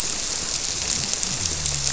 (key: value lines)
label: biophony
recorder: SoundTrap 300